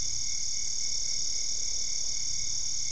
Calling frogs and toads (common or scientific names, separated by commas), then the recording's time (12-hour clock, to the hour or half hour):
none
9:30pm